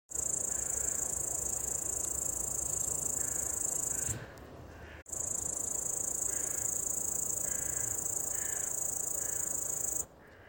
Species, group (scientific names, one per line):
Tettigonia cantans
Orthoptera